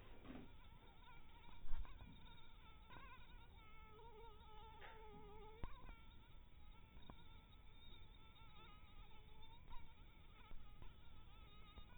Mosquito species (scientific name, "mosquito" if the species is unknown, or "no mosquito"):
mosquito